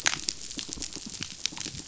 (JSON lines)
{"label": "biophony, rattle response", "recorder": "SoundTrap 500"}